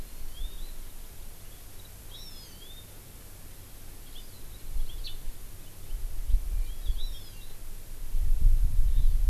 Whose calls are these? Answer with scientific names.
Chlorodrepanis virens